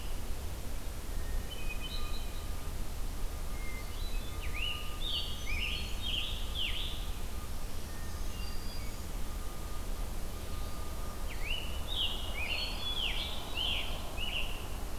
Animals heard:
Black-throated Green Warbler (Setophaga virens), Wood Thrush (Hylocichla mustelina), Scarlet Tanager (Piranga olivacea), Hermit Thrush (Catharus guttatus)

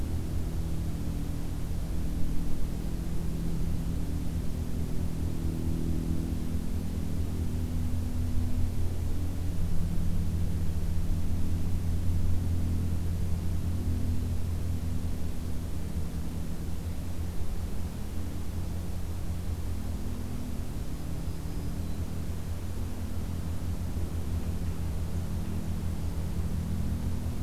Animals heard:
Black-throated Green Warbler (Setophaga virens)

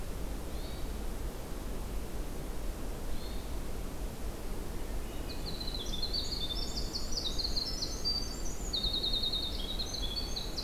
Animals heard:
Hermit Thrush (Catharus guttatus), Winter Wren (Troglodytes hiemalis), Northern Flicker (Colaptes auratus)

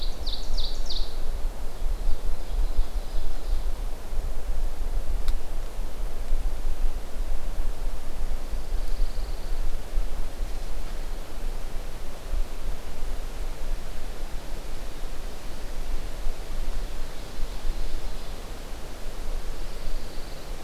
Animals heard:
Pine Warbler (Setophaga pinus), Ovenbird (Seiurus aurocapilla)

